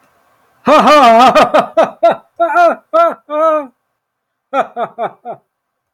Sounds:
Laughter